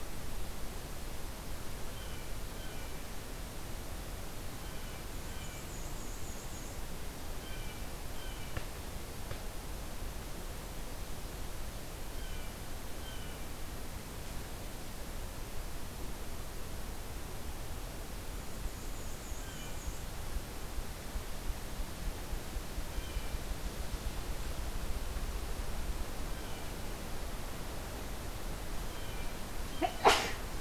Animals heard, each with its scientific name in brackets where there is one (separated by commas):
Blue Jay (Cyanocitta cristata), Black-and-white Warbler (Mniotilta varia)